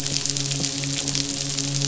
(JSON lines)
{"label": "biophony, midshipman", "recorder": "SoundTrap 500"}